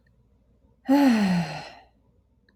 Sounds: Sigh